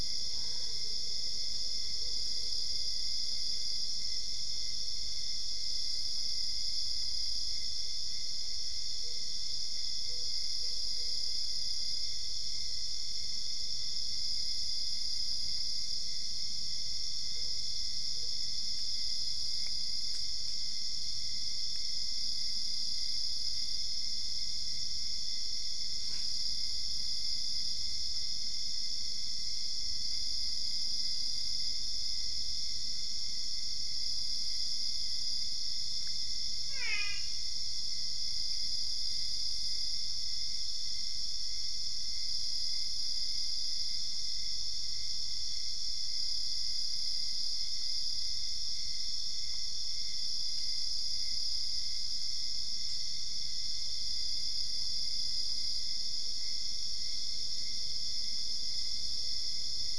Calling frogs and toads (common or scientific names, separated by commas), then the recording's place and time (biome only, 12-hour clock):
Boana albopunctata, brown-spotted dwarf frog
Cerrado, 1:30am